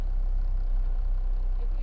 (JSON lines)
{"label": "anthrophony, boat engine", "recorder": "SoundTrap 300"}